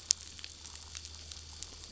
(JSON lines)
{"label": "anthrophony, boat engine", "recorder": "SoundTrap 500"}